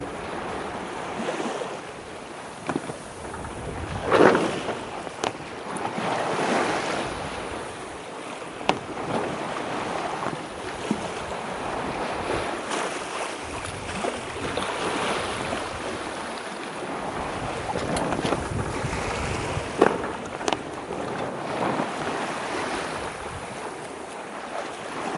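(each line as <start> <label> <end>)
0.0 A boat is moving through the water. 25.2
3.9 Water splashes. 4.7
8.5 A wave hits a boat with a muffled sound. 8.9
19.7 A wave hits a boat with a muffled sound. 20.7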